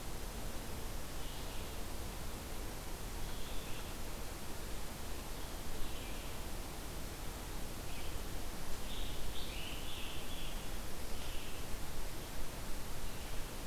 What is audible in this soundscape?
Red-eyed Vireo, Scarlet Tanager